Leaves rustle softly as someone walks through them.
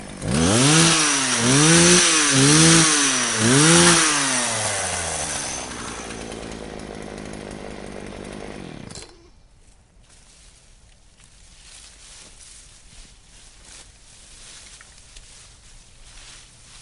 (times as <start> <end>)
10.2 16.8